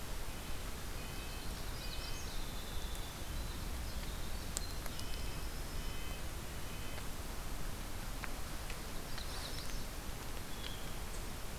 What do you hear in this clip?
Red-breasted Nuthatch, Magnolia Warbler, Winter Wren, Blue Jay